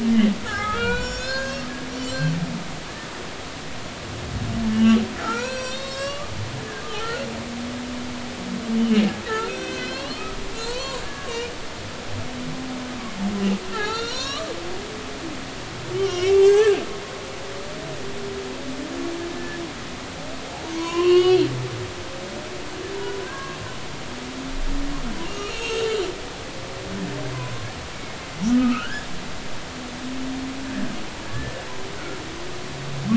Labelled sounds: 0.4	1.7	humpback whale, 0.90 to 8.0 kHz
2.1	2.3	humpback whale, 4.0 to 4.3 kHz
4.7	7.2	humpback whale, 0.80 to 7.9 kHz
9.3	11.5	humpback whale, 0.90 to 8.0 kHz
13.7	14.5	humpback whale, 0.80 to 7.3 kHz
15.9	16.8	humpback whale, 1.0 to 5.5 kHz
20.7	21.5	humpback whale, 0.90 to 6.8 kHz
23.2	23.6	humpback whale, 0.99 to 1.7 kHz
25.2	25.9	humpback whale, 1.2 to 3.3 kHz
28.5	29.1	humpback whale, 1.2 to 3.3 kHz
31.2	32.2	humpback whale, 1.3 to 1.8 kHz

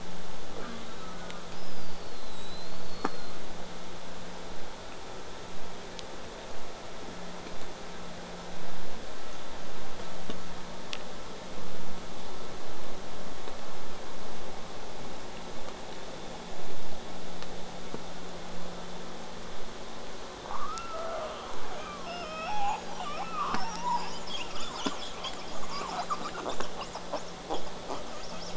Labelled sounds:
0.6	1.4	killer whale, southern resident, J pod, call S04, 0.08 to 4.2 kHz
1.5	3.3	killer whale, southern resident, J pod, whistle, 3.5 to 8.0 kHz
3.0	3.4	killer whale, southern resident, J pod, call S04, 0.27 to 1.9 kHz
20.5	24.1	killer whale, southern resident, J pod, 0.35 to 8.0 kHz
23.9	28.5	killer whale, southern resident, J pod, call S10, 0.19 to 8.0 kHz

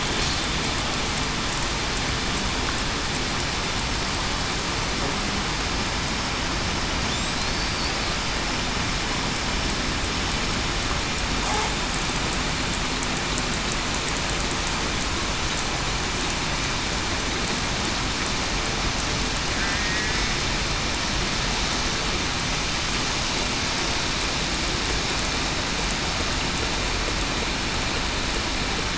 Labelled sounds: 19.5	20.1	killer whale, southern resident, 1.7 to 2.0 kHz

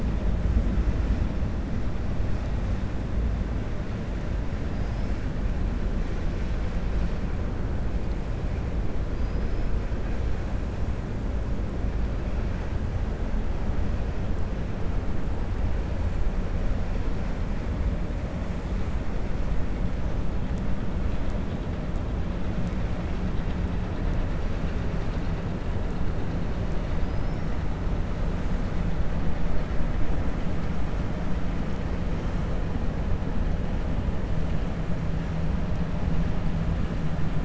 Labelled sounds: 9.1	9.7	killer whale, 4.8 to 5.3 kHz

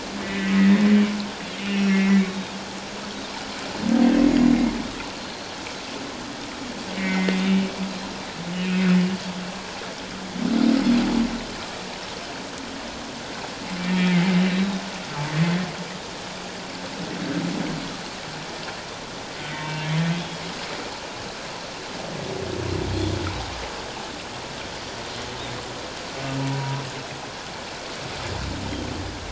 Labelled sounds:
0.2	0.5	humpback whale, 1.9 to 2.1 kHz
1.6	2.0	humpback whale, 2.5 to 5.7 kHz
1.9	2.6	Pacific white-sided dolphin, 1.9 to 3.8 kHz
4.3	5.5	Pacific white-sided dolphin, 4.1 to 6.9 kHz
6.9	7.4	humpback whale, 1.8 to 2.3 kHz
7.0	7.3	Pacific white-sided dolphin, 5.3 to 6.8 kHz
8.6	8.8	humpback whale, 2.4 to 2.6 kHz
13.8	14.3	humpback whale, 1.7 to 2.4 kHz
14.4	14.8	Pacific white-sided dolphin, 3.6 to 3.9 kHz
19.5	19.9	humpback whale, 0.88 to 2.3 kHz
26.4	26.8	humpback whale, 0.84 to 1.0 kHz

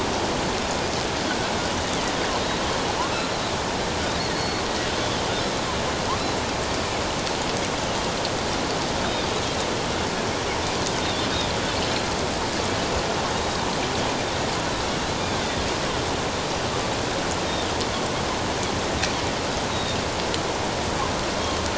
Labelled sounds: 3.1	3.4	Pacific white-sided dolphin, 3.9 to 4.2 kHz
4.3	4.6	Pacific white-sided dolphin, 4.2 to 4.4 kHz
11.0	11.3	Pacific white-sided dolphin, 3.3 to 3.8 kHz
13.3	13.6	Pacific white-sided dolphin, 3.7 to 3.9 kHz
19.7	20.0	Pacific white-sided dolphin, 3.5 to 3.9 kHz

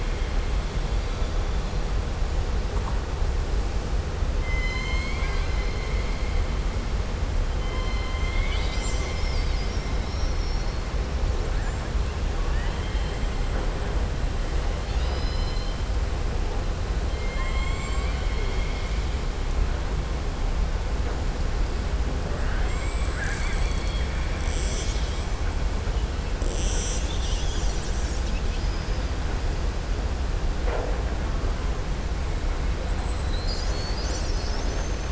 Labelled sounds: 4.4	5.6	killer whale, southern resident, 1.1 to 7.2 kHz
12.4	13.2	killer whale, southern resident, 0.93 to 3.3 kHz
14.8	15.8	killer whale, southern resident, 2.1 to 5.8 kHz
17.2	19.0	killer whale, southern resident, 1.1 to 7.6 kHz

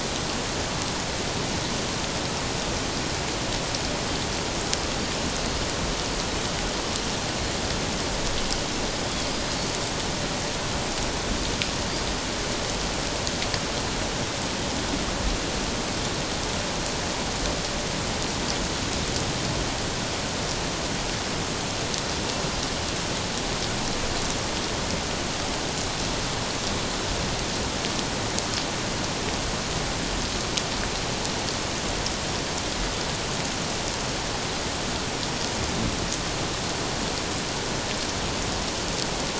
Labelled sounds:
9.3	9.6	Pacific white-sided dolphin, 4.8 to 5.0 kHz

